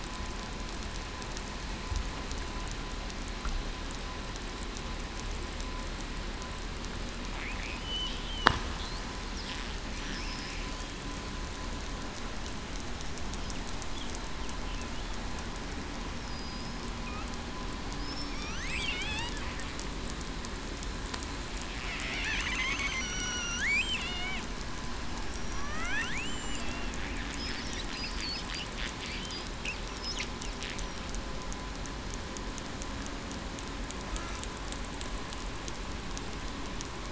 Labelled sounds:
16.3	16.8	killer whale, southern resident, 4.9 to 5.2 kHz
18.3	18.6	killer whale, southern resident, 2.2 to 3.2 kHz
18.9	19.3	killer whale, southern resident, 2.9 to 4.0 kHz
22.4	24.4	killer whale, southern resident, 1.4 to 6.4 kHz
25.2	26.6	killer whale, southern resident, 1.0 to 7.3 kHz

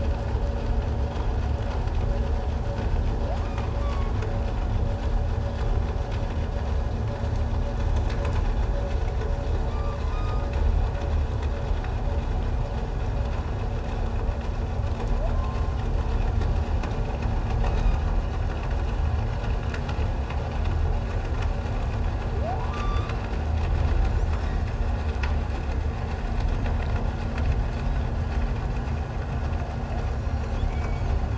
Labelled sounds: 3.4	4.1	humpback whale, 0.97 to 2.3 kHz
9.7	10.5	humpback whale, 1.1 to 5.0 kHz
15.3	15.7	humpback whale, 1.0 to 6.4 kHz
17.7	18.0	humpback whale, 3.6 to 4.0 kHz
22.7	23.1	humpback whale, 1.1 to 3.7 kHz
30.6	31.1	humpback whale, 2.1 to 2.3 kHz

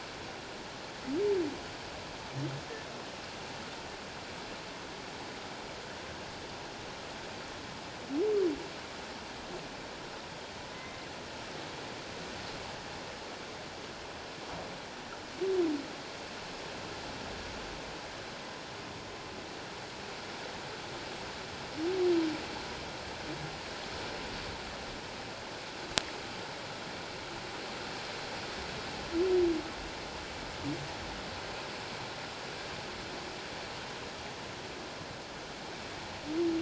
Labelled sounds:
10.7	11.0	humpback whale, 2.0 to 2.1 kHz

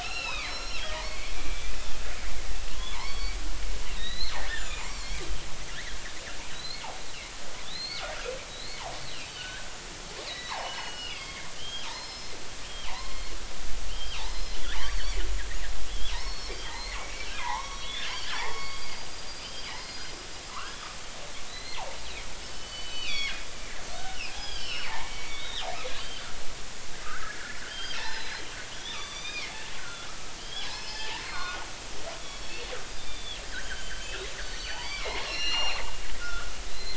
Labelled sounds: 0.0	1.7	killer whale, northern resident, G clan, 1.2 to 5.6 kHz
2.8	3.4	killer whale, northern resident, G clan, 0.80 to 4.6 kHz
4.0	5.2	killer whale, northern resident, G clan, 1.5 to 7.6 kHz
7.5	8.8	killer whale, northern resident, G clan, 1.2 to 4.5 kHz
9.3	12.3	killer whale, northern resident, G clan, 0.80 to 5.3 kHz
12.9	13.3	killer whale, northern resident, G clan, 0.80 to 4.4 kHz
13.9	14.6	killer whale, northern resident, G clan, 2.7 to 5.2 kHz
14.8	15.2	killer whale, northern resident, G clan, 4.2 to 4.7 kHz
16.1	20.9	killer whale, northern resident, G clan, 0.80 to 5.6 kHz
21.5	23.4	killer whale, northern resident, G clan, 1.1 to 4.9 kHz
24.0	25.6	killer whale, northern resident, G clan, 1.4 to 5.7 kHz
26.0	26.3	killer whale, northern resident, G clan, 2.8 to 4.8 kHz
27.0	28.4	killer whale, northern resident, G clan, 0.83 to 5.2 kHz
28.7	30.1	killer whale, northern resident, G clan, 1.1 to 6.2 kHz
30.4	31.6	killer whale, northern resident, G clan, 0.83 to 5.4 kHz
32.4	36.9	killer whale, northern resident, G clan, 0.80 to 7.1 kHz

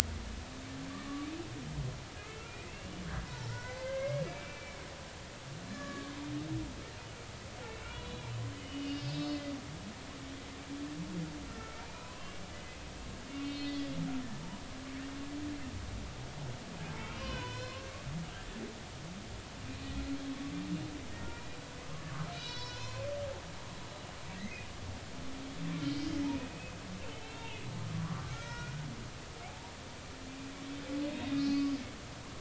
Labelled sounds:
0.9	1.2	humpback whale, 1.7 to 1.9 kHz
2.2	4.9	humpback whale, 0.86 to 3.0 kHz
5.7	6.1	humpback whale, 1.0 to 1.9 kHz
7.7	9.4	humpback whale, 2.5 to 5.3 kHz
11.5	12.8	humpback whale, 0.93 to 2.8 kHz
13.4	14.0	humpback whale, 2.2 to 4.3 kHz
16.9	17.9	humpback whale, 0.93 to 4.3 kHz
21.3	21.6	humpback whale, 2.3 to 2.5 kHz
22.3	23.1	humpback whale, 0.93 to 5.5 kHz
24.4	24.6	humpback whale, 1.9 to 2.2 kHz
25.8	26.7	humpback whale, 2.4 to 5.5 kHz
27.2	27.6	humpback whale, 2.5 to 3.3 kHz
27.9	28.9	humpback whale, 0.90 to 2.5 kHz
29.5	29.7	humpback whale, 0.80 to 0.99 kHz
31.1	31.7	humpback whale, 2.4 to 4.9 kHz

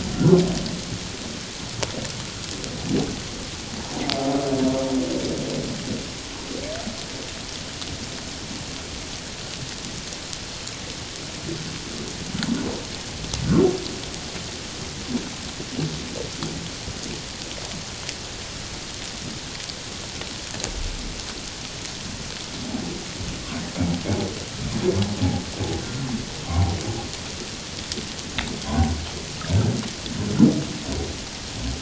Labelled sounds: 0.1	0.4	humpback whale, 1.3 to 1.5 kHz
25.8	26.8	humpback whale, 0.78 to 1.4 kHz
28.6	28.9	humpback whale, 0.78 to 0.84 kHz

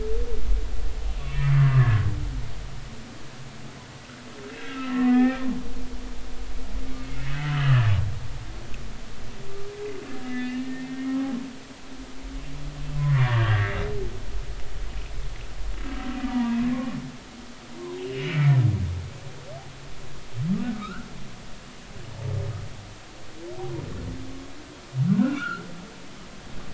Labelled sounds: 1.8	2.5	humpback whale, 1.6 to 2.8 kHz
4.6	5.5	humpback whale, 0.80 to 2.4 kHz
7.0	7.8	humpback whale, 1.4 to 3.1 kHz
10.2	11.3	humpback whale, 1.0 to 2.9 kHz
13.0	13.8	humpback whale, 1.1 to 2.2 kHz
16.3	17.0	humpback whale, 0.90 to 1.2 kHz
18.0	18.5	humpback whale, 2.2 to 3.0 kHz
20.7	21.1	humpback whale, 1.2 to 1.6 kHz
25.1	25.6	humpback whale, 1.1 to 2.9 kHz

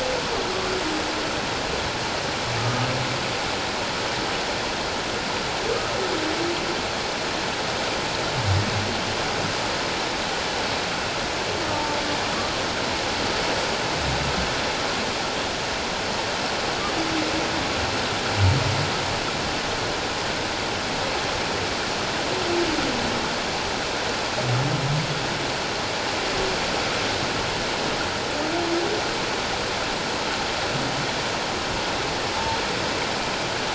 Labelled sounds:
2.6	2.9	humpback whale, 1.2 to 1.3 kHz
11.7	12.0	humpback whale, 0.84 to 0.97 kHz
32.3	32.6	humpback whale, 0.84 to 0.94 kHz

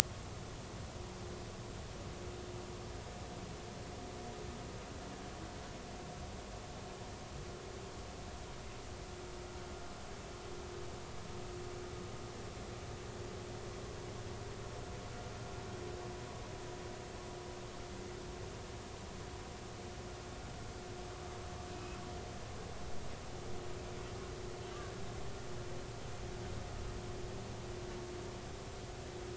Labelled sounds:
21.7	22.0	humpback whale, 2.5 to 2.7 kHz
24.7	24.9	humpback whale, 1.5 to 1.7 kHz

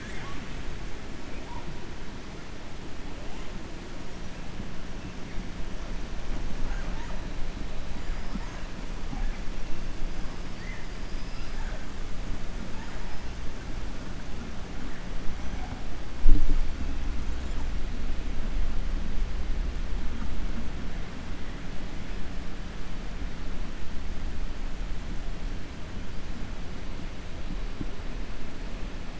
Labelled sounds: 6.6	7.2	killer whale, 0.55 to 2.5 kHz
10.9	11.7	killer whale, 4.0 to 6.8 kHz

